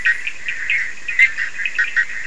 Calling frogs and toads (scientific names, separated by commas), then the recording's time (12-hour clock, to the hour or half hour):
Boana bischoffi, Sphaenorhynchus surdus
3am